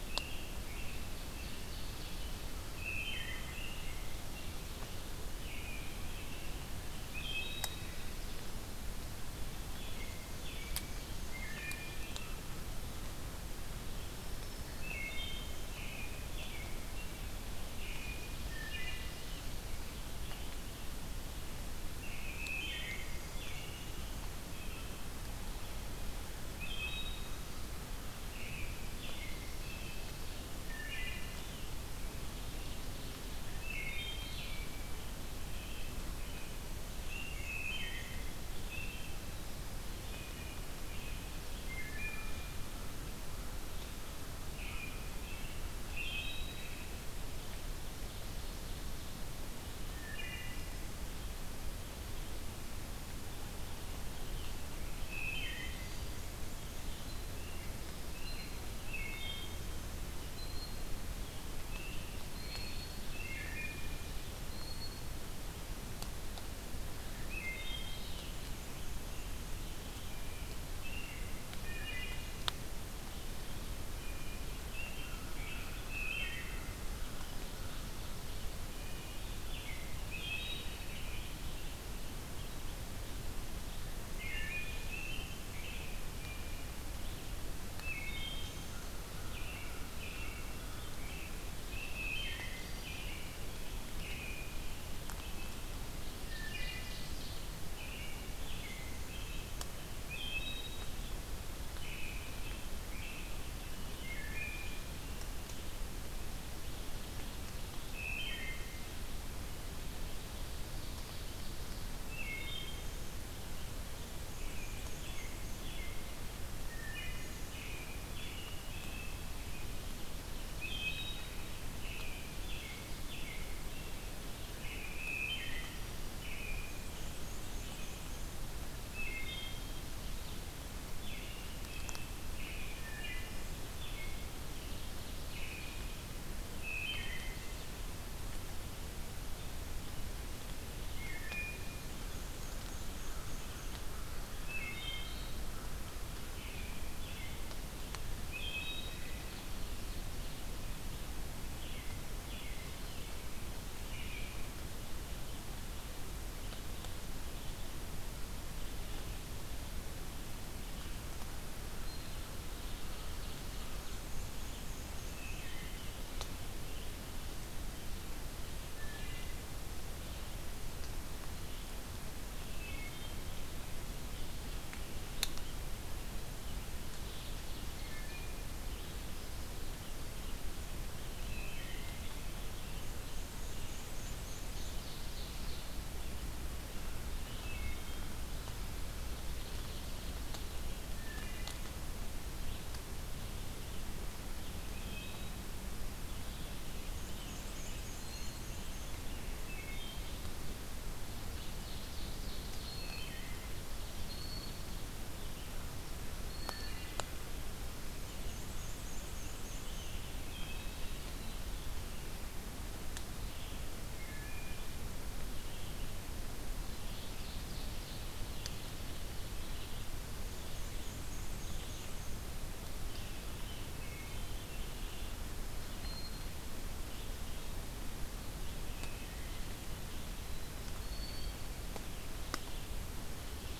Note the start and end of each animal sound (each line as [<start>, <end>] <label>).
[0.00, 2.44] American Robin (Turdus migratorius)
[0.63, 2.72] Ovenbird (Seiurus aurocapilla)
[2.72, 3.58] Wood Thrush (Hylocichla mustelina)
[3.48, 6.95] American Robin (Turdus migratorius)
[3.73, 5.21] Ovenbird (Seiurus aurocapilla)
[7.05, 7.84] Wood Thrush (Hylocichla mustelina)
[9.47, 12.50] American Robin (Turdus migratorius)
[9.71, 11.94] Black-and-white Warbler (Mniotilta varia)
[11.17, 12.32] Wood Thrush (Hylocichla mustelina)
[14.00, 15.13] Black-throated Green Warbler (Setophaga virens)
[14.56, 15.52] Wood Thrush (Hylocichla mustelina)
[15.68, 18.45] American Robin (Turdus migratorius)
[18.38, 19.29] Wood Thrush (Hylocichla mustelina)
[21.53, 25.16] American Robin (Turdus migratorius)
[22.25, 24.39] Black-and-white Warbler (Mniotilta varia)
[22.37, 23.25] Wood Thrush (Hylocichla mustelina)
[26.49, 27.27] Wood Thrush (Hylocichla mustelina)
[28.20, 30.57] American Robin (Turdus migratorius)
[30.60, 31.37] Wood Thrush (Hylocichla mustelina)
[32.02, 33.69] Ovenbird (Seiurus aurocapilla)
[33.63, 34.58] Wood Thrush (Hylocichla mustelina)
[34.44, 37.40] American Robin (Turdus migratorius)
[37.29, 38.32] Wood Thrush (Hylocichla mustelina)
[38.61, 42.03] American Robin (Turdus migratorius)
[41.61, 42.57] Wood Thrush (Hylocichla mustelina)
[44.45, 47.04] American Robin (Turdus migratorius)
[45.85, 46.81] Wood Thrush (Hylocichla mustelina)
[47.68, 49.33] Ovenbird (Seiurus aurocapilla)
[49.86, 50.82] Wood Thrush (Hylocichla mustelina)
[54.97, 55.95] Wood Thrush (Hylocichla mustelina)
[56.77, 58.65] American Robin (Turdus migratorius)
[58.73, 59.66] Wood Thrush (Hylocichla mustelina)
[60.23, 65.19] Blue Jay (Cyanocitta cristata)
[61.31, 63.34] American Robin (Turdus migratorius)
[63.04, 63.96] Wood Thrush (Hylocichla mustelina)
[67.23, 68.15] Wood Thrush (Hylocichla mustelina)
[68.50, 71.59] American Robin (Turdus migratorius)
[71.46, 72.41] Wood Thrush (Hylocichla mustelina)
[73.65, 75.99] American Robin (Turdus migratorius)
[74.89, 77.94] American Crow (Corvus brachyrhynchos)
[75.78, 76.59] Wood Thrush (Hylocichla mustelina)
[76.64, 78.79] Ovenbird (Seiurus aurocapilla)
[78.80, 81.40] American Robin (Turdus migratorius)
[80.09, 80.70] Wood Thrush (Hylocichla mustelina)
[83.89, 84.89] Wood Thrush (Hylocichla mustelina)
[84.22, 86.71] American Robin (Turdus migratorius)
[87.62, 88.83] Wood Thrush (Hylocichla mustelina)
[88.50, 91.03] American Crow (Corvus brachyrhynchos)
[88.98, 91.41] American Robin (Turdus migratorius)
[91.77, 93.05] Wood Thrush (Hylocichla mustelina)
[92.63, 95.93] American Robin (Turdus migratorius)
[95.92, 97.48] Ovenbird (Seiurus aurocapilla)
[96.13, 97.06] Wood Thrush (Hylocichla mustelina)
[97.63, 99.55] American Robin (Turdus migratorius)
[99.94, 100.84] Wood Thrush (Hylocichla mustelina)
[101.61, 103.58] American Robin (Turdus migratorius)
[103.97, 104.74] Wood Thrush (Hylocichla mustelina)
[107.76, 108.94] Wood Thrush (Hylocichla mustelina)
[110.08, 111.86] Ovenbird (Seiurus aurocapilla)
[111.93, 113.11] Wood Thrush (Hylocichla mustelina)
[113.94, 115.72] Black-and-white Warbler (Mniotilta varia)
[114.19, 116.12] American Robin (Turdus migratorius)
[116.55, 117.52] Wood Thrush (Hylocichla mustelina)
[117.46, 119.62] American Robin (Turdus migratorius)
[120.29, 121.35] Wood Thrush (Hylocichla mustelina)
[121.61, 124.19] American Robin (Turdus migratorius)
[124.50, 128.12] American Robin (Turdus migratorius)
[125.02, 125.79] Wood Thrush (Hylocichla mustelina)
[126.37, 128.41] Black-and-white Warbler (Mniotilta varia)
[128.78, 129.64] Wood Thrush (Hylocichla mustelina)
[130.81, 135.97] American Robin (Turdus migratorius)
[132.51, 133.51] Wood Thrush (Hylocichla mustelina)
[134.04, 135.97] Ovenbird (Seiurus aurocapilla)
[136.54, 137.56] Wood Thrush (Hylocichla mustelina)
[140.81, 141.90] Wood Thrush (Hylocichla mustelina)
[141.60, 143.95] Black-and-white Warbler (Mniotilta varia)
[142.21, 144.29] American Crow (Corvus brachyrhynchos)
[144.43, 145.34] Wood Thrush (Hylocichla mustelina)
[146.08, 147.69] American Robin (Turdus migratorius)
[148.12, 149.14] Wood Thrush (Hylocichla mustelina)
[148.56, 150.47] Ovenbird (Seiurus aurocapilla)
[151.47, 154.47] American Robin (Turdus migratorius)
[154.96, 197.57] Red-eyed Vireo (Vireo olivaceus)
[162.09, 164.20] Ovenbird (Seiurus aurocapilla)
[163.64, 165.58] Black-and-white Warbler (Mniotilta varia)
[165.15, 165.96] Wood Thrush (Hylocichla mustelina)
[168.54, 169.50] Wood Thrush (Hylocichla mustelina)
[172.45, 173.26] Wood Thrush (Hylocichla mustelina)
[176.57, 178.47] Ovenbird (Seiurus aurocapilla)
[177.60, 178.58] Wood Thrush (Hylocichla mustelina)
[181.01, 182.18] Wood Thrush (Hylocichla mustelina)
[182.73, 184.90] Black-and-white Warbler (Mniotilta varia)
[184.19, 185.98] Ovenbird (Seiurus aurocapilla)
[187.20, 188.07] Wood Thrush (Hylocichla mustelina)
[188.78, 190.91] Ovenbird (Seiurus aurocapilla)
[190.69, 191.66] Wood Thrush (Hylocichla mustelina)
[194.47, 195.50] Wood Thrush (Hylocichla mustelina)
[196.76, 199.07] Black-and-white Warbler (Mniotilta varia)
[197.35, 199.98] American Robin (Turdus migratorius)
[197.84, 206.91] Blue Jay (Cyanocitta cristata)
[199.32, 200.20] Wood Thrush (Hylocichla mustelina)
[200.97, 202.80] Ovenbird (Seiurus aurocapilla)
[202.57, 203.47] Wood Thrush (Hylocichla mustelina)
[206.31, 207.25] Wood Thrush (Hylocichla mustelina)
[207.91, 209.99] Black-and-white Warbler (Mniotilta varia)
[209.16, 212.28] American Robin (Turdus migratorius)
[209.98, 210.87] Wood Thrush (Hylocichla mustelina)
[213.13, 233.59] Red-eyed Vireo (Vireo olivaceus)
[213.77, 214.78] Wood Thrush (Hylocichla mustelina)
[216.46, 219.87] Ovenbird (Seiurus aurocapilla)
[219.92, 222.40] Black-and-white Warbler (Mniotilta varia)
[222.61, 225.35] American Robin (Turdus migratorius)
[225.76, 231.65] Blue Jay (Cyanocitta cristata)
[233.04, 233.59] Ovenbird (Seiurus aurocapilla)